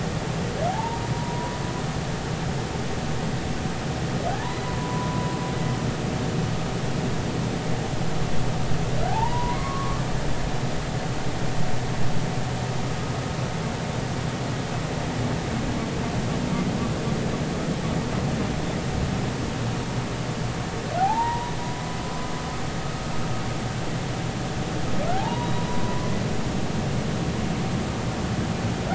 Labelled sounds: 0.7	1.6	humpback whale, 0.80 to 1.0 kHz
4.3	5.3	humpback whale, 0.80 to 1.1 kHz
9.1	10.0	humpback whale, 0.80 to 2.3 kHz
21.0	21.5	humpback whale, 0.80 to 1.0 kHz
25.1	26.1	humpback whale, 0.80 to 1.2 kHz

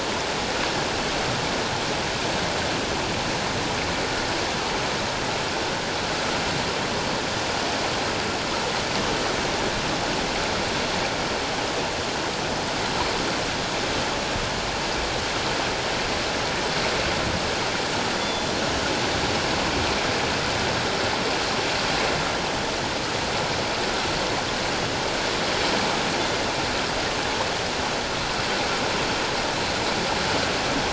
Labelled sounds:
18.2	18.5	killer whale, northern resident, G clan, 3.4 to 3.7 kHz

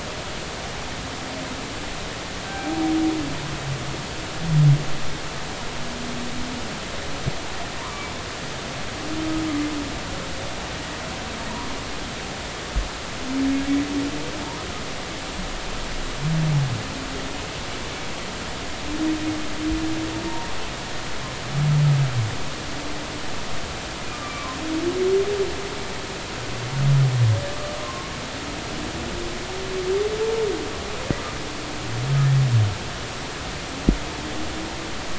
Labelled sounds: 2.4	2.8	humpback whale, 0.80 to 1.6 kHz
7.8	8.0	humpback whale, 0.90 to 1.3 kHz
24.1	24.6	humpback whale, 0.99 to 2.4 kHz
27.5	28.1	humpback whale, 0.99 to 1.3 kHz

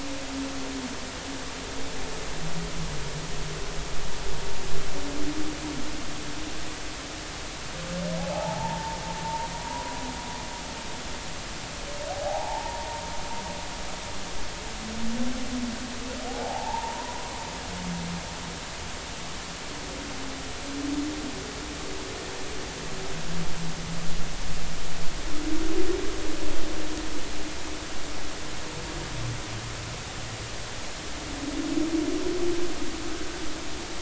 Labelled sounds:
8.2	9.0	humpback whale, 0.80 to 0.99 kHz
9.2	10.0	humpback whale, 0.86 to 1.0 kHz
12.1	13.0	humpback whale, 0.80 to 0.99 kHz
16.3	17.3	humpback whale, 0.80 to 1.1 kHz

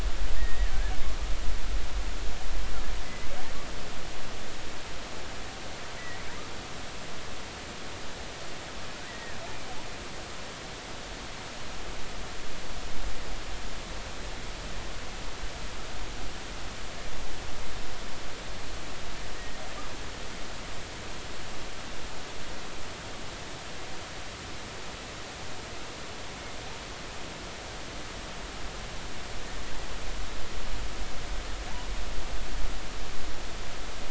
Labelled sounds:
0.4	0.7	killer whale, offshore, 1.7 to 2.0 kHz
5.9	6.2	killer whale, offshore, 1.9 to 2.1 kHz
9.1	9.4	killer whale, offshore, 1.6 to 2.0 kHz

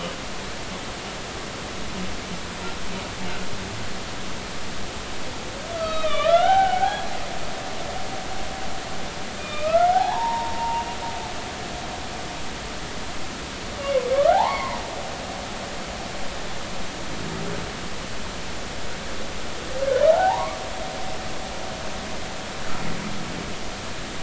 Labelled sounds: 5.7	7.1	humpback whale, 0.80 to 4.6 kHz
9.4	10.9	humpback whale, 0.80 to 2.7 kHz
13.8	14.8	humpback whale, 0.80 to 2.3 kHz
20.1	20.6	humpback whale, 0.80 to 1.2 kHz

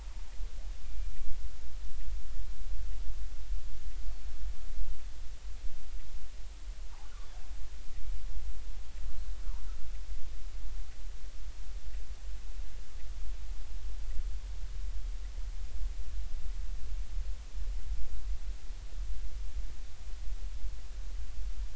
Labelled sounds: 0.9	1.1	killer whale, northern resident, 2.3 to 2.5 kHz

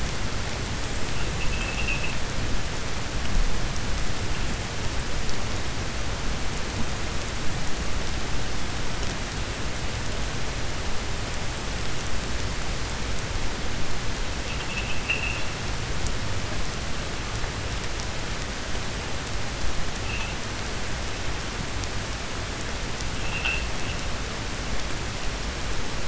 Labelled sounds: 1.3	2.2	vessel noise, 2.5 to 3.4 kHz

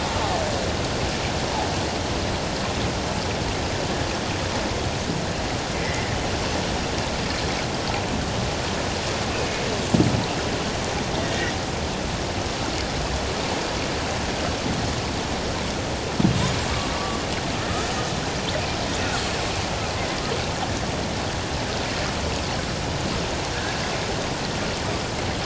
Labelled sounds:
5.7	6.2	killer whale, Bigg's (transient), 1.8 to 2.2 kHz
11.2	11.5	killer whale, Bigg's (transient), 1.8 to 2.0 kHz
16.9	17.2	killer whale, Bigg's (transient), 1.1 to 1.2 kHz

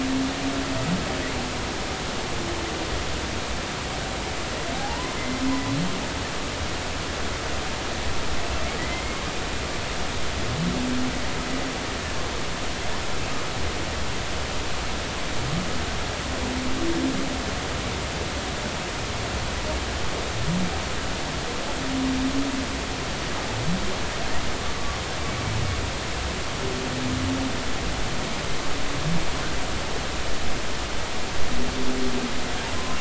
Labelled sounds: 4.7	5.1	humpback whale, 0.80 to 1.1 kHz
8.8	9.2	humpback whale, 1.9 to 2.2 kHz

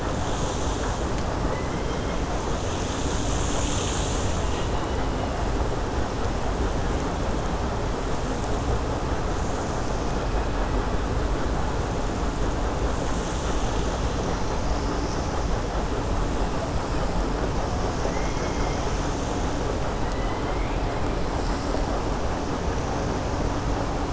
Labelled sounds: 1.4	2.2	killer whale, 1.3 to 2.2 kHz
18.0	18.8	killer whale, 1.6 to 3.3 kHz
20.1	20.8	killer whale, 1.1 to 3.1 kHz

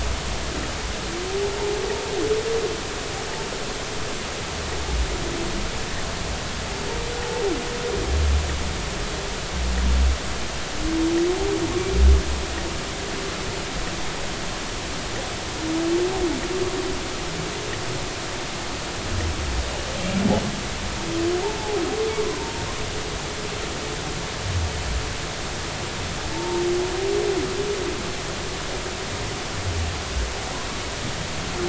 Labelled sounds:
7.2	7.4	humpback whale, 0.80 to 0.93 kHz
21.4	21.8	humpback whale, 0.80 to 1.0 kHz
26.3	26.6	humpback whale, 0.83 to 0.96 kHz

